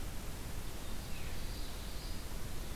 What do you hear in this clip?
Common Yellowthroat